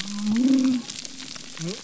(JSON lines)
{"label": "biophony", "recorder": "SoundTrap 300"}